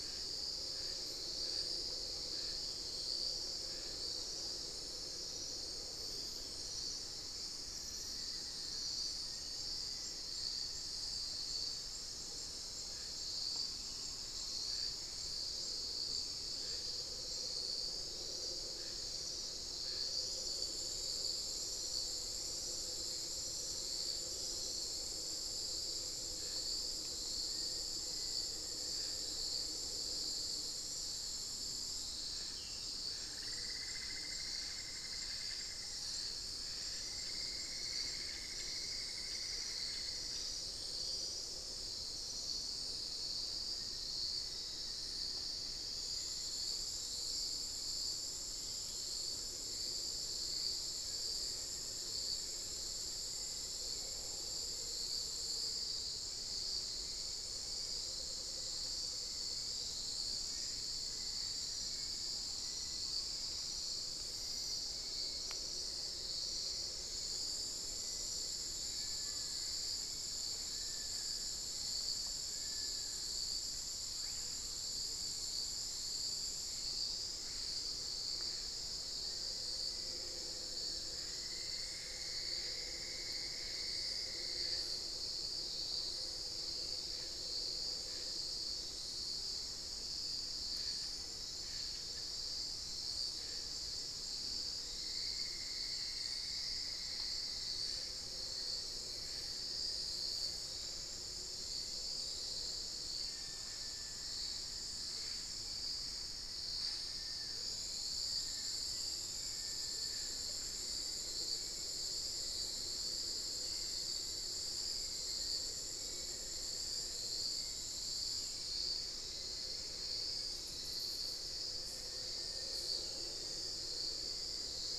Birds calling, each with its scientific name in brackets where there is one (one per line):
Screaming Piha (Lipaugus vociferans)
Red-crowned Ant-Tanager (Habia rubica)
Cinnamon-throated Woodcreeper (Dendrexetastes rufigula)
Long-billed Woodcreeper (Nasica longirostris)
Black-faced Antthrush (Formicarius analis)
Amazonian Motmot (Momotus momota)
unidentified bird
Hauxwell's Thrush (Turdus hauxwelli)
Amazonian Barred-Woodcreeper (Dendrocolaptes certhia)
Amazonian Pygmy-Owl (Glaucidium hardyi)